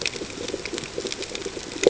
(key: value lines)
label: ambient
recorder: HydroMoth